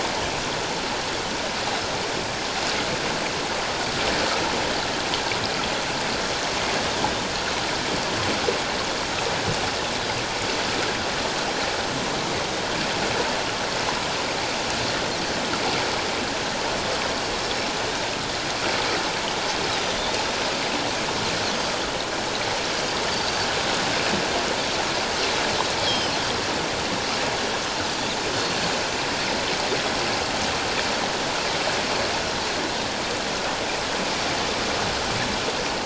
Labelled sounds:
23.1	23.5	Pacific white-sided dolphin, 4.4 to 4.7 kHz
25.8	26.1	Pacific white-sided dolphin, 2.9 to 5.2 kHz
28.4	28.7	Pacific white-sided dolphin, 4.3 to 4.5 kHz

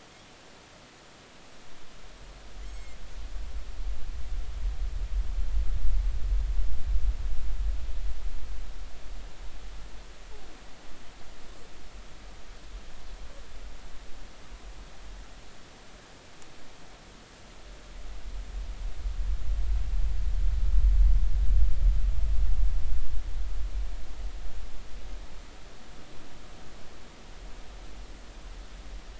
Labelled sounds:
2.7	3.0	Pacific white-sided dolphin, 5.3 to 7.7 kHz

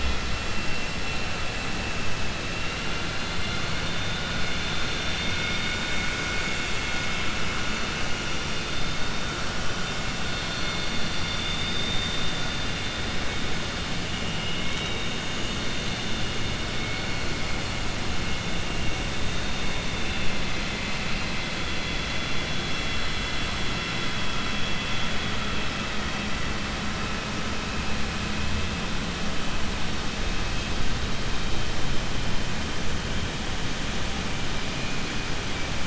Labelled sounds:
14.4	15.1	vessel noise, 2.2 to 3.8 kHz
19.9	21.5	vessel noise, 2.1 to 4.2 kHz

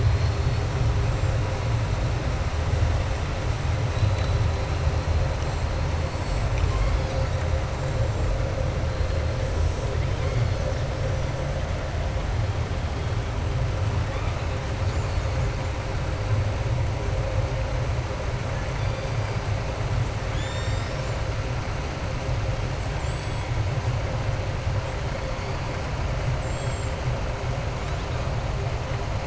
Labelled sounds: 0.0	0.6	killer whale, southern resident, 3.5 to 5.2 kHz
3.9	4.4	killer whale, southern resident, 3.6 to 4.5 kHz
20.2	21.2	killer whale, southern resident, 1.7 to 7.5 kHz
22.7	23.5	killer whale, southern resident, 7.1 to 8.0 kHz

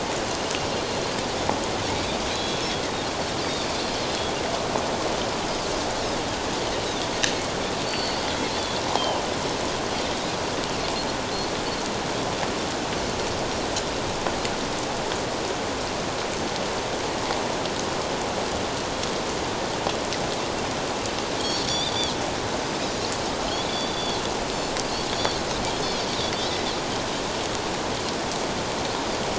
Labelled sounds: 2.3	2.6	Pacific white-sided dolphin, 3.2 to 4.2 kHz
7.8	9.2	Pacific white-sided dolphin, 2.8 to 4.6 kHz
21.4	22.1	Pacific white-sided dolphin, 3.2 to 6.0 kHz
23.7	24.2	Pacific white-sided dolphin, 3.2 to 4.8 kHz
26.4	26.6	Pacific white-sided dolphin, 5.2 to 5.4 kHz

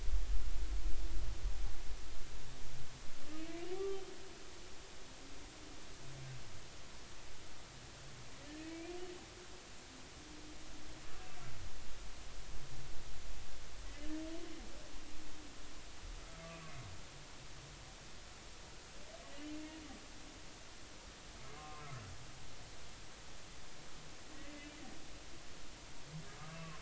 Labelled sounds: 3.7	4.0	humpback whale, 1.1 to 1.2 kHz
8.5	9.0	humpback whale, 1.7 to 2.5 kHz
21.5	21.9	humpback whale, 0.99 to 2.6 kHz

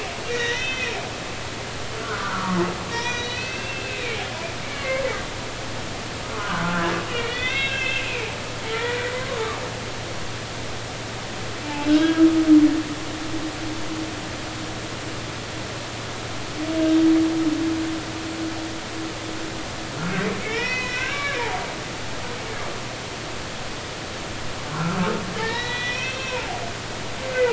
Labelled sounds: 0.3	1.0	humpback whale, 1.7 to 3.7 kHz
2.0	2.6	humpback whale, 0.96 to 1.6 kHz
2.9	4.2	humpback whale, 1.5 to 5.9 kHz
4.6	5.0	humpback whale, 1.0 to 2.4 kHz
6.3	8.3	humpback whale, 0.96 to 3.8 kHz
8.7	9.4	humpback whale, 0.96 to 2.0 kHz
11.7	12.2	humpback whale, 1.4 to 3.3 kHz
20.4	21.7	humpback whale, 0.80 to 4.1 kHz
25.3	26.5	humpback whale, 1.6 to 5.8 kHz

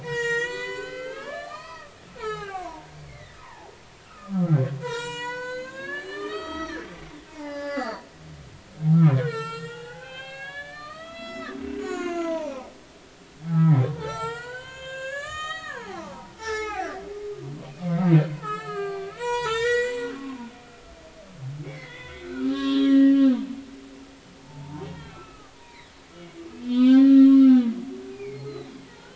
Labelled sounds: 0.0	3.7	humpback whale, 0.80 to 8.0 kHz
4.0	12.7	humpback whale, 0.80 to 8.0 kHz
13.5	16.9	humpback whale, 0.80 to 8.0 kHz
18.3	20.5	humpback whale, 0.80 to 7.9 kHz
21.6	23.4	humpback whale, 1.0 to 4.2 kHz
24.4	25.9	humpback whale, 0.83 to 2.7 kHz
26.5	27.7	humpback whale, 0.90 to 5.6 kHz
28.1	29.1	humpback whale, 1.3 to 4.3 kHz

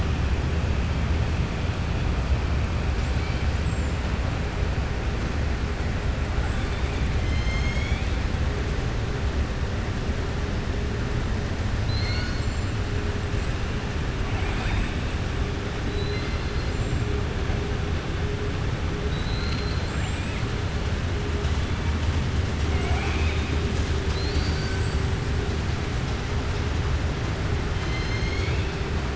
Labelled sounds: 6.3	8.1	killer whale, southern resident, 2.1 to 8.0 kHz
11.7	12.8	killer whale, southern resident, 1.5 to 7.6 kHz
14.2	15.1	killer whale, southern resident, 0.73 to 8.0 kHz
15.8	16.7	killer whale, southern resident, 2.0 to 4.9 kHz
19.0	19.9	killer whale, southern resident, 3.0 to 4.9 kHz
24.0	25.0	killer whale, southern resident, 3.5 to 7.9 kHz
27.7	28.7	killer whale, southern resident, 2.0 to 6.6 kHz

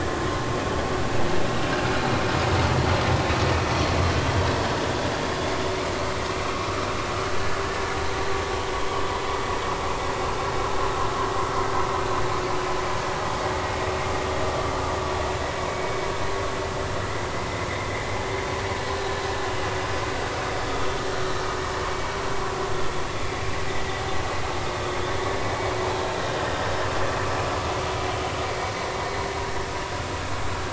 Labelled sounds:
15.7	16.1	vessel noise, 2.2 to 2.3 kHz

